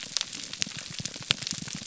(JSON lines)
{"label": "biophony, pulse", "recorder": "SoundTrap 300"}